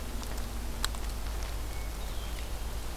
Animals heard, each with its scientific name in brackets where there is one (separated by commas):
Hermit Thrush (Catharus guttatus)